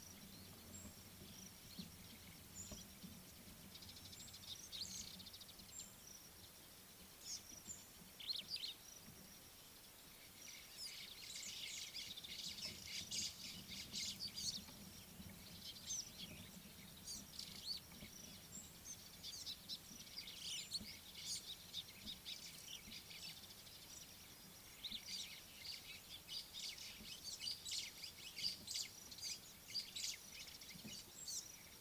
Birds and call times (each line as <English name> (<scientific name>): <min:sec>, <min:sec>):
Mariqua Sunbird (Cinnyris mariquensis): 0:04.1
Superb Starling (Lamprotornis superbus): 0:08.2, 0:17.6
White-browed Sparrow-Weaver (Plocepasser mahali): 0:13.1, 0:27.7